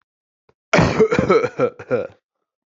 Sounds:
Cough